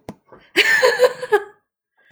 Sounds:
Laughter